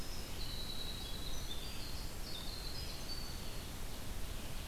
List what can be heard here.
Winter Wren, Red-eyed Vireo